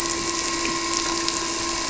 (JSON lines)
{"label": "anthrophony, boat engine", "recorder": "SoundTrap 300"}